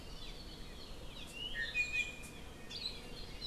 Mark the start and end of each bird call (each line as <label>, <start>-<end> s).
Iiwi (Drepanis coccinea), 1.5-2.4 s